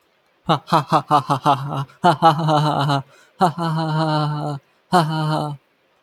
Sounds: Laughter